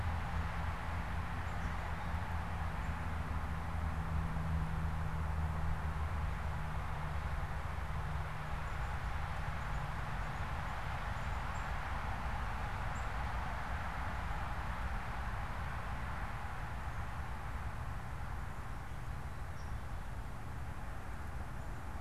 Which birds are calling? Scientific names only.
Poecile atricapillus